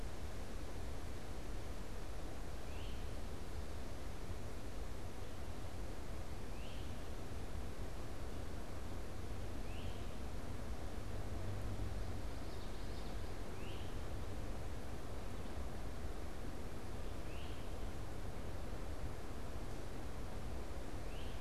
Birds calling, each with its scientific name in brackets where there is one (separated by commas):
Great Crested Flycatcher (Myiarchus crinitus)